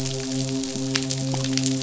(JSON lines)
{"label": "biophony, midshipman", "recorder": "SoundTrap 500"}